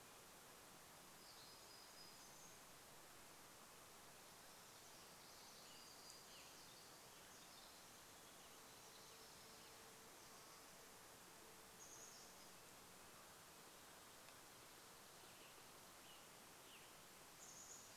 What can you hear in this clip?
warbler song, Western Tanager song, Pacific Wren song, Chestnut-backed Chickadee call, Red-breasted Nuthatch song